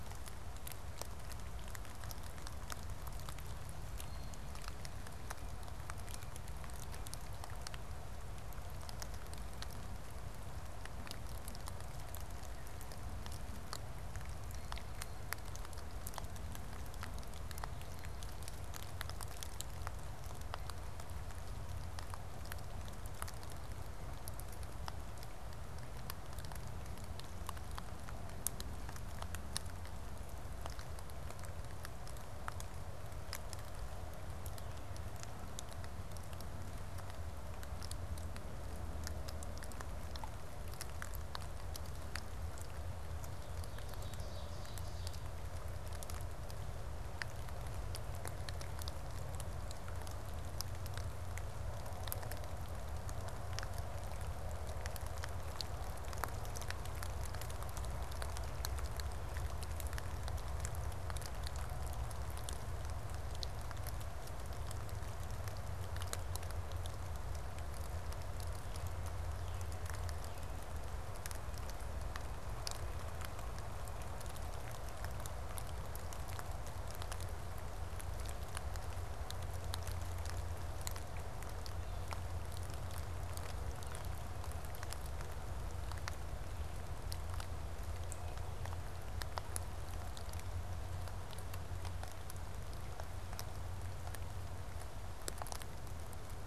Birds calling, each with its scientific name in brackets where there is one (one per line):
Blue Jay (Cyanocitta cristata)
Ovenbird (Seiurus aurocapilla)